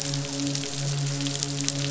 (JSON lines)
{"label": "biophony, midshipman", "recorder": "SoundTrap 500"}